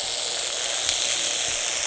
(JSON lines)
{"label": "anthrophony, boat engine", "recorder": "HydroMoth"}